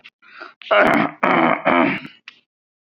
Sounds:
Throat clearing